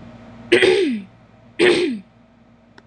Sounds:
Throat clearing